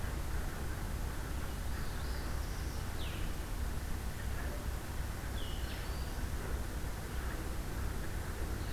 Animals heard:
Black-throated Green Warbler (Setophaga virens), Northern Parula (Setophaga americana), Blue-headed Vireo (Vireo solitarius)

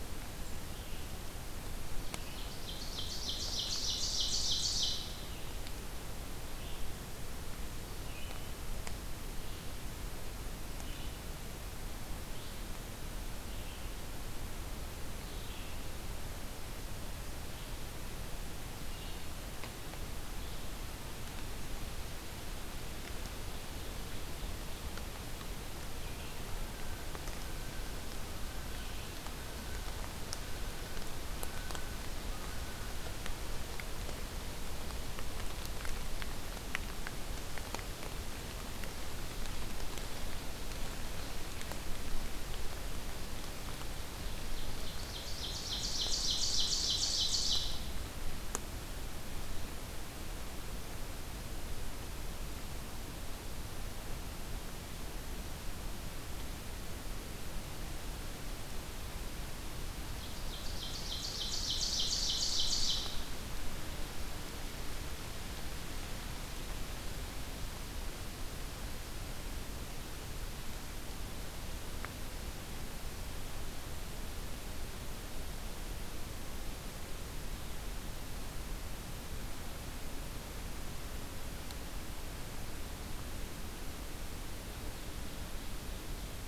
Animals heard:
Red-eyed Vireo (Vireo olivaceus), Ovenbird (Seiurus aurocapilla), Common Loon (Gavia immer)

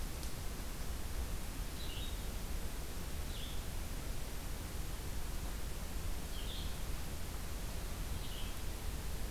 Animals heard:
Red-eyed Vireo (Vireo olivaceus)

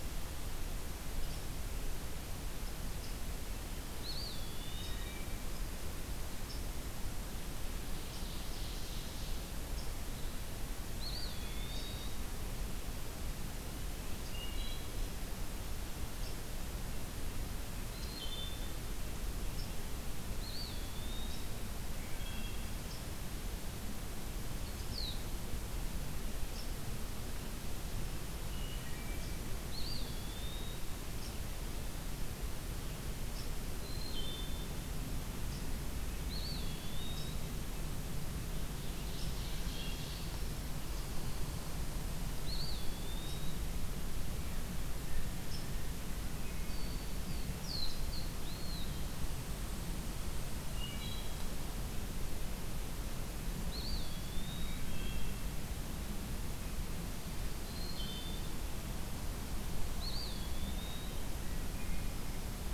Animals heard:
Eastern Wood-Pewee (Contopus virens), Wood Thrush (Hylocichla mustelina), unidentified call, Ovenbird (Seiurus aurocapilla)

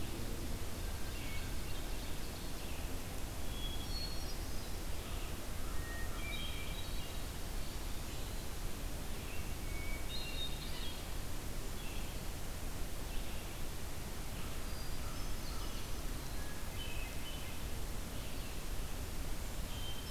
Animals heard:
Red-eyed Vireo (Vireo olivaceus), Ovenbird (Seiurus aurocapilla), Hermit Thrush (Catharus guttatus)

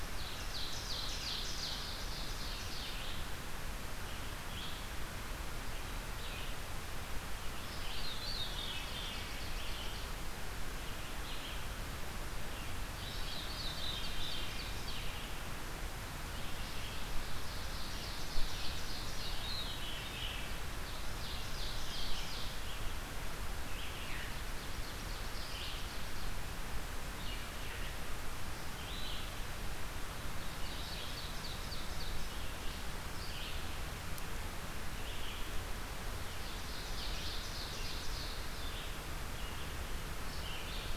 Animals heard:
Ovenbird (Seiurus aurocapilla), Red-eyed Vireo (Vireo olivaceus), Veery (Catharus fuscescens)

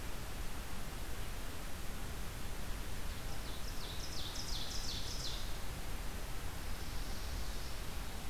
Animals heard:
Ovenbird (Seiurus aurocapilla), Swamp Sparrow (Melospiza georgiana)

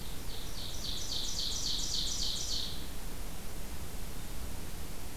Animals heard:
Ovenbird (Seiurus aurocapilla)

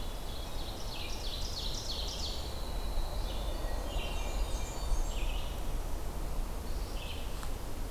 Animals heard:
Winter Wren (Troglodytes hiemalis), Hermit Thrush (Catharus guttatus), Red-eyed Vireo (Vireo olivaceus), Ovenbird (Seiurus aurocapilla), Blackburnian Warbler (Setophaga fusca)

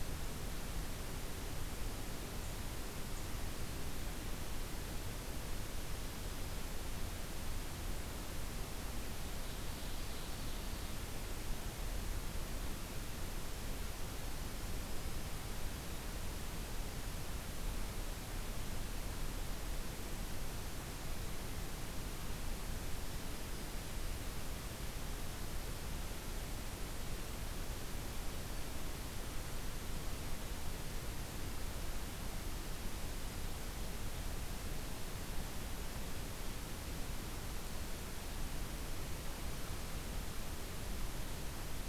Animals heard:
Ovenbird (Seiurus aurocapilla)

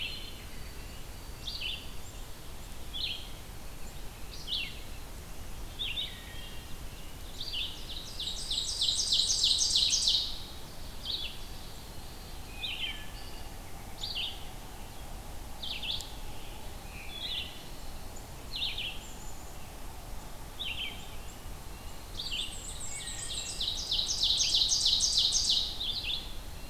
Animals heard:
Red-breasted Nuthatch (Sitta canadensis), Black-and-white Warbler (Mniotilta varia), Black-capped Chickadee (Poecile atricapillus), Ovenbird (Seiurus aurocapilla), Wood Thrush (Hylocichla mustelina), Red-eyed Vireo (Vireo olivaceus), White-throated Sparrow (Zonotrichia albicollis)

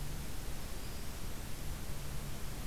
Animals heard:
Black-throated Green Warbler (Setophaga virens)

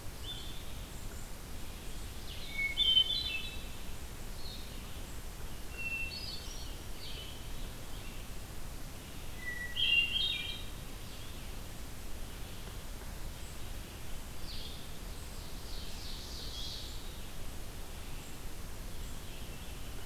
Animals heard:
Hermit Thrush (Catharus guttatus), Blue-headed Vireo (Vireo solitarius), Scarlet Tanager (Piranga olivacea), Red-eyed Vireo (Vireo olivaceus), Ovenbird (Seiurus aurocapilla)

